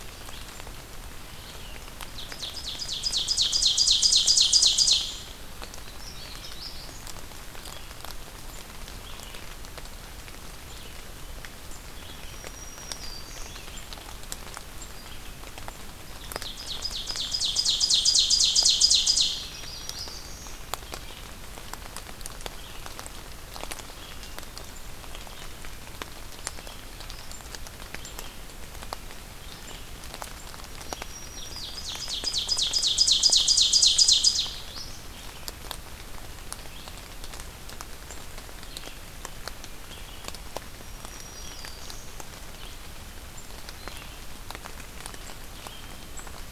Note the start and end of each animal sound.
1.6s-5.1s: Ovenbird (Seiurus aurocapilla)
5.8s-7.0s: Red-eyed Vireo (Vireo olivaceus)
12.2s-13.8s: Black-throated Green Warbler (Setophaga virens)
16.0s-19.6s: Ovenbird (Seiurus aurocapilla)
19.3s-20.3s: Magnolia Warbler (Setophaga magnolia)
19.3s-20.8s: Black-throated Green Warbler (Setophaga virens)
20.8s-46.5s: Red-eyed Vireo (Vireo olivaceus)
30.8s-32.1s: Black-throated Green Warbler (Setophaga virens)
31.3s-34.6s: Ovenbird (Seiurus aurocapilla)
40.5s-42.3s: Black-throated Green Warbler (Setophaga virens)

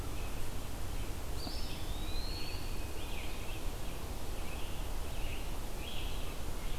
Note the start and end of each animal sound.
0.0s-6.8s: Red-eyed Vireo (Vireo olivaceus)
1.2s-2.8s: Eastern Wood-Pewee (Contopus virens)
1.8s-3.2s: Tufted Titmouse (Baeolophus bicolor)
2.3s-6.4s: Scarlet Tanager (Piranga olivacea)

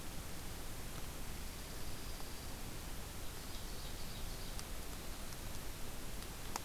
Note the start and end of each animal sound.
1.5s-2.8s: Dark-eyed Junco (Junco hyemalis)
3.3s-4.6s: Ovenbird (Seiurus aurocapilla)

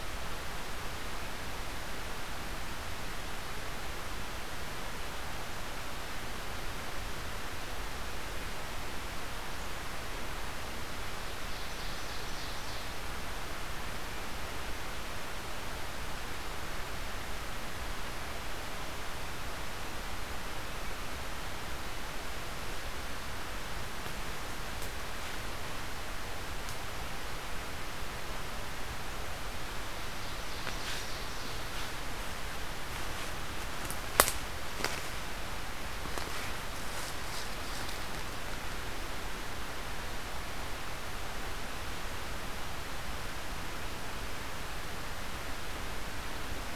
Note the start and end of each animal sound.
11.0s-12.9s: Ovenbird (Seiurus aurocapilla)
30.0s-31.6s: Ovenbird (Seiurus aurocapilla)

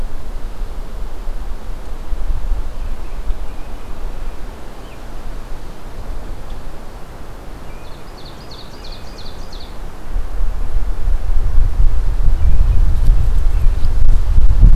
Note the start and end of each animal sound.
2.3s-4.2s: American Robin (Turdus migratorius)
7.4s-9.4s: American Robin (Turdus migratorius)
7.8s-9.8s: Ovenbird (Seiurus aurocapilla)
12.4s-13.9s: American Robin (Turdus migratorius)

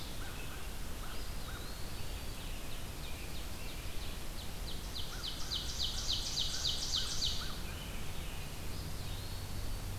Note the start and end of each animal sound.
0.1s-1.7s: American Crow (Corvus brachyrhynchos)
0.8s-2.6s: Eastern Wood-Pewee (Contopus virens)
1.7s-3.9s: Scarlet Tanager (Piranga olivacea)
2.3s-7.5s: Ovenbird (Seiurus aurocapilla)
4.9s-8.1s: American Crow (Corvus brachyrhynchos)
7.1s-10.0s: Red-eyed Vireo (Vireo olivaceus)
7.4s-9.3s: Scarlet Tanager (Piranga olivacea)
8.5s-10.0s: Eastern Wood-Pewee (Contopus virens)

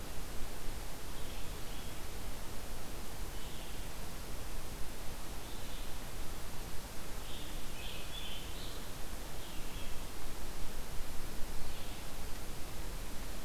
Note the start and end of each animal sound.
0.0s-12.2s: Red-eyed Vireo (Vireo olivaceus)
7.1s-9.0s: Scarlet Tanager (Piranga olivacea)

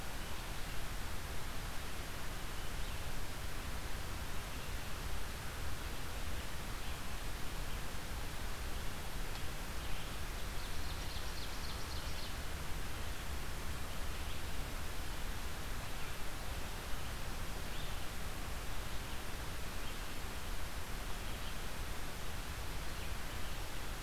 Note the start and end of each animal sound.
10.0s-12.5s: Ovenbird (Seiurus aurocapilla)
17.3s-24.0s: Red-eyed Vireo (Vireo olivaceus)

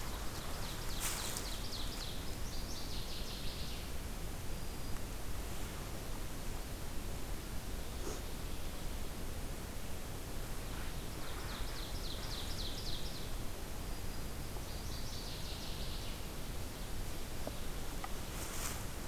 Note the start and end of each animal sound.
0.0s-2.2s: Ovenbird (Seiurus aurocapilla)
2.3s-4.0s: Northern Waterthrush (Parkesia noveboracensis)
4.4s-5.0s: Black-throated Green Warbler (Setophaga virens)
11.0s-13.4s: Ovenbird (Seiurus aurocapilla)
13.8s-14.6s: Black-throated Green Warbler (Setophaga virens)
14.6s-16.5s: Northern Waterthrush (Parkesia noveboracensis)

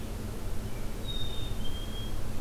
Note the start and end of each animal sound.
0.9s-2.3s: Black-capped Chickadee (Poecile atricapillus)

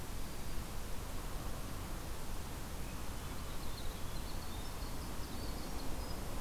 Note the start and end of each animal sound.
0.0s-0.7s: Black-throated Green Warbler (Setophaga virens)
3.2s-6.3s: Winter Wren (Troglodytes hiemalis)

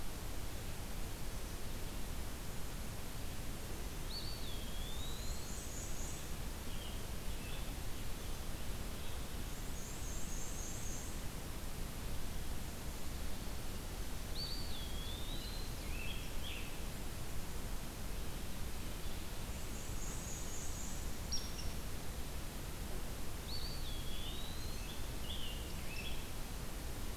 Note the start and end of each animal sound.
3.8s-6.0s: Eastern Wood-Pewee (Contopus virens)
4.8s-6.4s: Black-and-white Warbler (Mniotilta varia)
6.5s-7.7s: Scarlet Tanager (Piranga olivacea)
9.3s-11.3s: Black-and-white Warbler (Mniotilta varia)
14.1s-15.9s: Eastern Wood-Pewee (Contopus virens)
14.6s-16.0s: Ovenbird (Seiurus aurocapilla)
15.7s-16.7s: Scarlet Tanager (Piranga olivacea)
19.3s-21.3s: Black-and-white Warbler (Mniotilta varia)
21.2s-21.7s: Hairy Woodpecker (Dryobates villosus)
23.2s-25.0s: Eastern Wood-Pewee (Contopus virens)
23.8s-26.5s: Scarlet Tanager (Piranga olivacea)

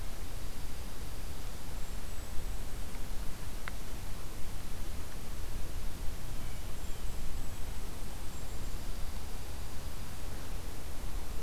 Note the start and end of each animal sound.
0.1s-1.6s: Dark-eyed Junco (Junco hyemalis)
1.6s-3.0s: Golden-crowned Kinglet (Regulus satrapa)
6.2s-7.1s: Blue Jay (Cyanocitta cristata)
6.2s-8.8s: Golden-crowned Kinglet (Regulus satrapa)
8.4s-10.3s: Dark-eyed Junco (Junco hyemalis)

